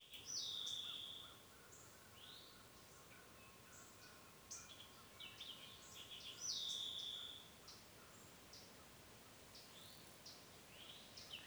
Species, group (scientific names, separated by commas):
Magicicada tredecim, Cicadidae